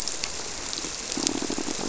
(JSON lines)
{"label": "biophony, squirrelfish (Holocentrus)", "recorder": "SoundTrap 300"}